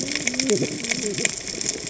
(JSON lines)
{"label": "biophony, cascading saw", "recorder": "HydroMoth"}